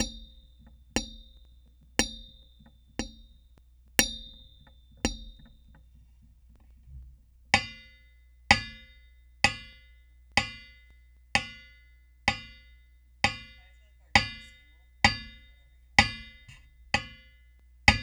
Is someone using a hammer?
yes